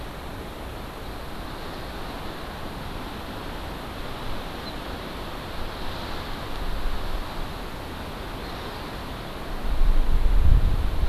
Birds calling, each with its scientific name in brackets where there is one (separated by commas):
Hawaii Amakihi (Chlorodrepanis virens)